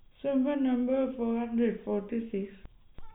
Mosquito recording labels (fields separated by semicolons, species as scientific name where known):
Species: no mosquito; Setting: cup